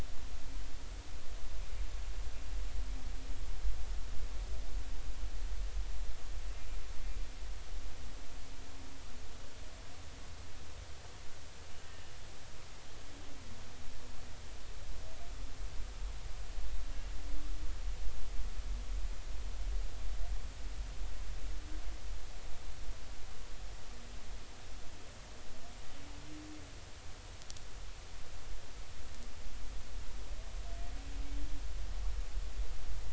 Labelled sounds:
11.8	12.1	humpback whale, 1.7 to 1.9 kHz

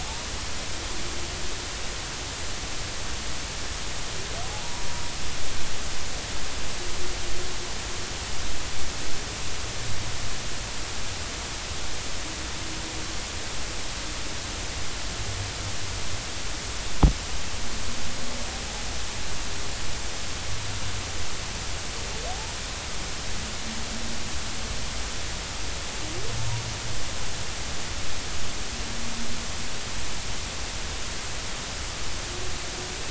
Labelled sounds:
0.0	0.3	humpback whale, 0.80 to 1.1 kHz
22.3	22.5	humpback whale, 0.80 to 0.99 kHz

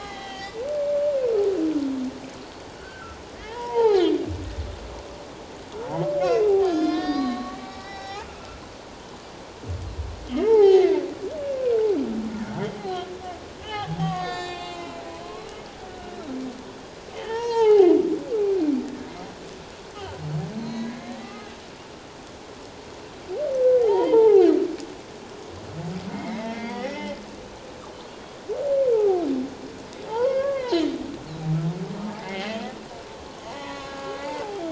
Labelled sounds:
1.1	1.5	humpback whale, 1.2 to 1.6 kHz
2.8	4.0	humpback whale, 0.78 to 3.4 kHz
6.2	8.6	humpback whale, 0.78 to 6.3 kHz
10.4	11.0	humpback whale, 0.78 to 2.3 kHz
12.8	15.5	humpback whale, 1.0 to 7.5 kHz
17.1	17.9	humpback whale, 0.78 to 6.7 kHz
18.5	18.8	humpback whale, 2.2 to 2.5 kHz
20.6	21.5	humpback whale, 0.91 to 4.3 kHz
23.8	24.5	humpback whale, 0.78 to 3.3 kHz
26.1	27.2	humpback whale, 1.8 to 3.5 kHz
28.9	30.8	humpback whale, 0.78 to 1.8 kHz
32.0	32.6	humpback whale, 0.81 to 2.2 kHz
33.5	34.6	humpback whale, 0.78 to 4.2 kHz

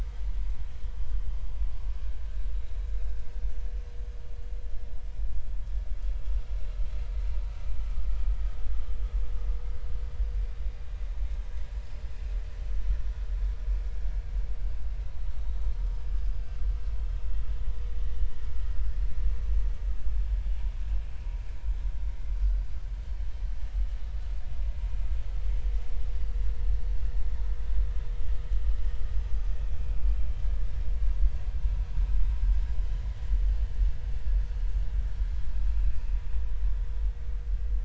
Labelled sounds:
17.0	17.2	vessel noise, 3.1 to 3.3 kHz

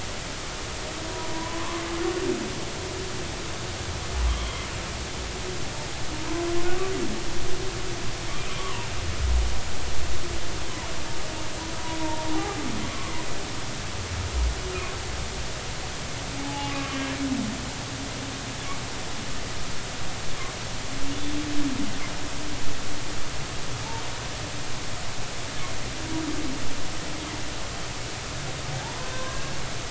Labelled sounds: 1.1	1.8	humpback whale, 0.86 to 1.2 kHz
4.3	4.6	humpback whale, 3.1 to 3.4 kHz
8.5	8.9	humpback whale, 0.86 to 1.2 kHz
12.0	13.1	humpback whale, 0.80 to 1.2 kHz
16.4	17.0	humpback whale, 0.80 to 1.2 kHz
28.8	29.4	humpback whale, 0.80 to 1.2 kHz

